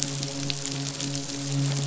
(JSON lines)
{"label": "biophony, midshipman", "recorder": "SoundTrap 500"}